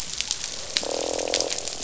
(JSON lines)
{"label": "biophony, croak", "recorder": "SoundTrap 500"}